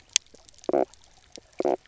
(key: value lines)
label: biophony, knock croak
recorder: SoundTrap 300